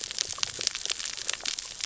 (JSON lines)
{"label": "biophony, cascading saw", "recorder": "SoundTrap 600 or HydroMoth"}